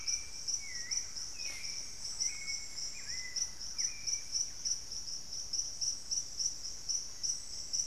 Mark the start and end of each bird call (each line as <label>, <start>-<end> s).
Thrush-like Wren (Campylorhynchus turdinus), 0.0-4.9 s
Buff-breasted Wren (Cantorchilus leucotis), 0.0-7.9 s
Hauxwell's Thrush (Turdus hauxwelli), 0.0-7.9 s
Black-faced Antthrush (Formicarius analis), 7.0-7.9 s